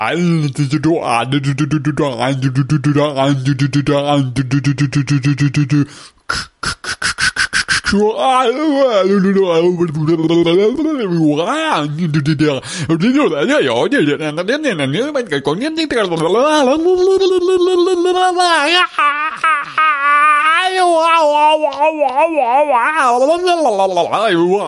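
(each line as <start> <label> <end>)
0.0 An emotionally disturbed man is speaking incoherently. 5.9
6.3 A man is rambling unintelligible words and noises. 24.7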